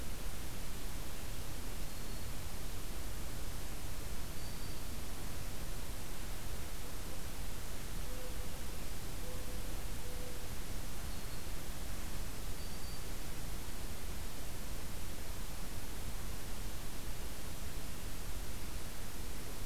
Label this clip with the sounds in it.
Black-throated Green Warbler